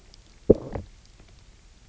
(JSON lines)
{"label": "biophony, low growl", "recorder": "SoundTrap 300"}